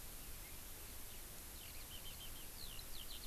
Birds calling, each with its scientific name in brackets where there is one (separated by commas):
Eurasian Skylark (Alauda arvensis)